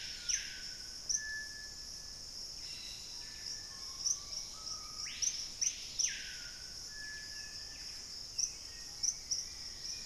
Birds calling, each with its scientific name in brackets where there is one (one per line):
Black-faced Antthrush (Formicarius analis)
Screaming Piha (Lipaugus vociferans)
Dusky-capped Greenlet (Pachysylvia hypoxantha)
Bright-rumped Attila (Attila spadiceus)
Buff-breasted Wren (Cantorchilus leucotis)
Black-capped Becard (Pachyramphus marginatus)